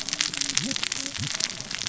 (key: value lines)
label: biophony, cascading saw
recorder: SoundTrap 600 or HydroMoth